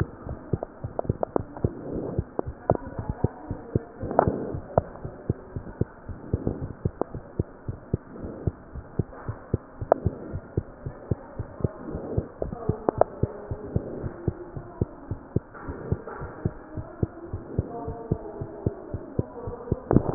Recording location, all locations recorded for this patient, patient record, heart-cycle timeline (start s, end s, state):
mitral valve (MV)
aortic valve (AV)+pulmonary valve (PV)+tricuspid valve (TV)+mitral valve (MV)
#Age: Child
#Sex: Male
#Height: 90.0 cm
#Weight: 13.9 kg
#Pregnancy status: False
#Murmur: Absent
#Murmur locations: nan
#Most audible location: nan
#Systolic murmur timing: nan
#Systolic murmur shape: nan
#Systolic murmur grading: nan
#Systolic murmur pitch: nan
#Systolic murmur quality: nan
#Diastolic murmur timing: nan
#Diastolic murmur shape: nan
#Diastolic murmur grading: nan
#Diastolic murmur pitch: nan
#Diastolic murmur quality: nan
#Outcome: Normal
#Campaign: 2015 screening campaign
0.00	6.53	unannotated
6.53	6.60	diastole
6.60	6.72	S1
6.72	6.82	systole
6.82	6.92	S2
6.92	7.14	diastole
7.14	7.22	S1
7.22	7.38	systole
7.38	7.50	S2
7.50	7.68	diastole
7.68	7.80	S1
7.80	7.92	systole
7.92	8.00	S2
8.00	8.18	diastole
8.18	8.32	S1
8.32	8.44	systole
8.44	8.56	S2
8.56	8.74	diastole
8.74	8.84	S1
8.84	8.98	systole
8.98	9.08	S2
9.08	9.28	diastole
9.28	9.36	S1
9.36	9.50	systole
9.50	9.64	S2
9.64	9.80	diastole
9.80	9.90	S1
9.90	10.02	systole
10.02	10.14	S2
10.14	10.30	diastole
10.30	10.42	S1
10.42	10.54	systole
10.54	10.68	S2
10.68	10.84	diastole
10.84	10.94	S1
10.94	11.08	systole
11.08	11.20	S2
11.20	11.40	diastole
11.40	11.50	S1
11.50	11.60	systole
11.60	11.74	S2
11.74	11.88	diastole
11.88	12.02	S1
12.02	12.12	systole
12.12	12.26	S2
12.26	12.42	diastole
12.42	12.56	S1
12.56	12.64	systole
12.64	12.78	S2
12.78	12.96	diastole
12.96	13.08	S1
13.08	13.18	systole
13.18	13.30	S2
13.30	13.50	diastole
13.50	13.62	S1
13.62	13.74	systole
13.74	13.84	S2
13.84	14.00	diastole
14.00	14.14	S1
14.14	14.26	systole
14.26	14.36	S2
14.36	14.56	diastole
14.56	14.66	S1
14.66	14.78	systole
14.78	14.88	S2
14.88	15.10	diastole
15.10	15.20	S1
15.20	15.32	systole
15.32	15.46	S2
15.46	15.66	diastole
15.66	15.78	S1
15.78	15.88	systole
15.88	16.02	S2
16.02	16.20	diastole
16.20	16.32	S1
16.32	16.44	systole
16.44	16.54	S2
16.54	16.74	diastole
16.74	16.86	S1
16.86	17.00	systole
17.00	17.14	S2
17.14	17.32	diastole
17.32	17.42	S1
17.42	17.54	systole
17.54	17.70	S2
17.70	17.86	diastole
17.86	17.98	S1
17.98	18.10	systole
18.10	18.20	S2
18.20	18.38	diastole
18.38	18.50	S1
18.50	18.62	systole
18.62	18.76	S2
18.76	18.92	diastole
18.92	19.04	S1
19.04	19.16	systole
19.16	19.28	S2
19.28	19.46	diastole
19.46	19.56	S1
19.56	19.66	systole
19.66	19.76	S2
19.76	19.90	diastole
19.90	20.14	unannotated